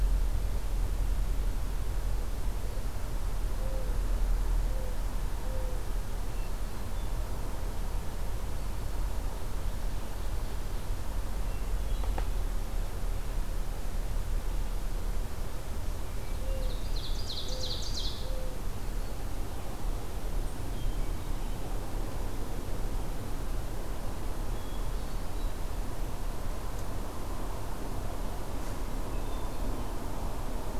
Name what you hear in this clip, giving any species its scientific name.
Zenaida macroura, Catharus guttatus, Seiurus aurocapilla